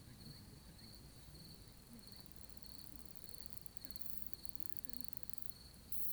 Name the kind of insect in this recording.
orthopteran